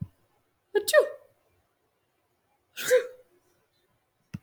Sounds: Sniff